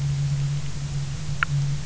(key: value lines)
label: anthrophony, boat engine
recorder: SoundTrap 300